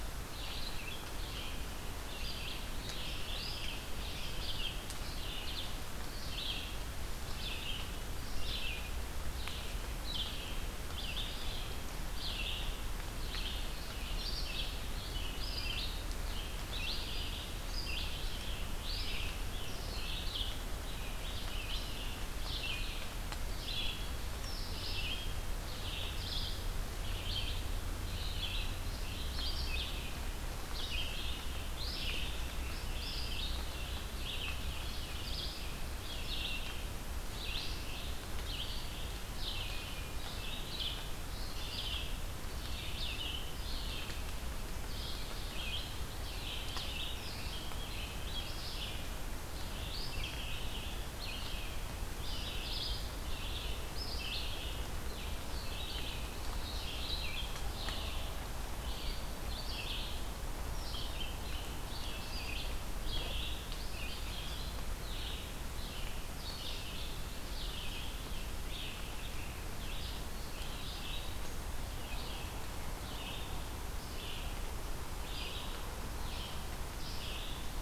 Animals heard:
Red-eyed Vireo (Vireo olivaceus)

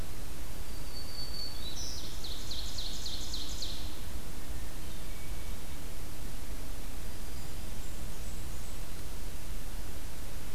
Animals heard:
Black-throated Green Warbler (Setophaga virens), Hermit Thrush (Catharus guttatus), Ovenbird (Seiurus aurocapilla), Blackburnian Warbler (Setophaga fusca)

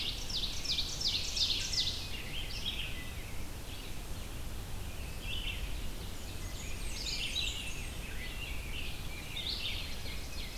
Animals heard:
American Robin (Turdus migratorius), Ovenbird (Seiurus aurocapilla), Rose-breasted Grosbeak (Pheucticus ludovicianus), Blackburnian Warbler (Setophaga fusca), Red-eyed Vireo (Vireo olivaceus)

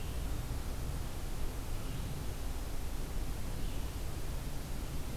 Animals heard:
Red-eyed Vireo (Vireo olivaceus)

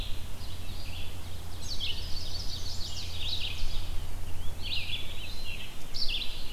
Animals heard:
Ovenbird (Seiurus aurocapilla), Chestnut-sided Warbler (Setophaga pensylvanica), Red-eyed Vireo (Vireo olivaceus), Eastern Wood-Pewee (Contopus virens)

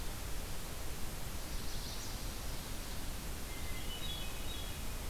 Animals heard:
Hermit Thrush (Catharus guttatus), Chestnut-sided Warbler (Setophaga pensylvanica)

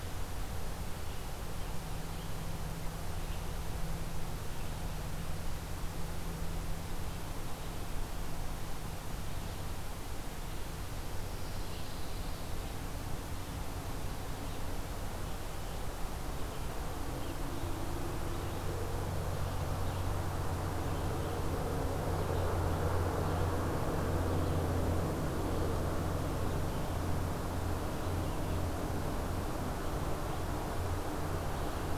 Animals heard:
Pine Warbler (Setophaga pinus), Red-eyed Vireo (Vireo olivaceus)

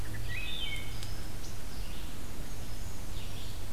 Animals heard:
Wood Thrush (Hylocichla mustelina), Black-and-white Warbler (Mniotilta varia), Brown Creeper (Certhia americana), Red-eyed Vireo (Vireo olivaceus)

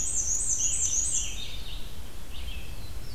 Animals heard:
Red-eyed Vireo (Vireo olivaceus), Black-and-white Warbler (Mniotilta varia)

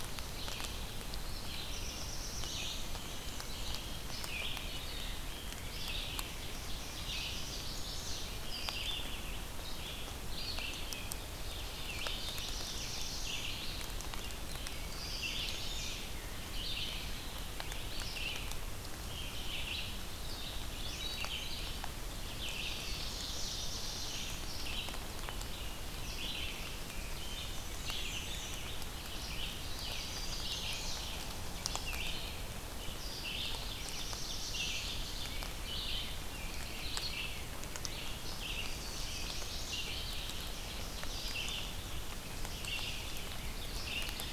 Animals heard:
Black-and-white Warbler (Mniotilta varia), Red-eyed Vireo (Vireo olivaceus), Black-throated Blue Warbler (Setophaga caerulescens), Ovenbird (Seiurus aurocapilla), Chestnut-sided Warbler (Setophaga pensylvanica)

